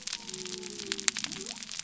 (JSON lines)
{"label": "biophony", "recorder": "SoundTrap 300"}